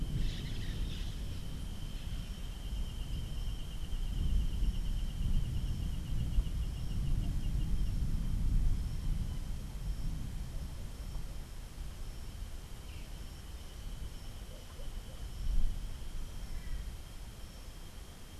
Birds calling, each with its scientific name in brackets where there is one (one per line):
Orange-fronted Parakeet (Eupsittula canicularis)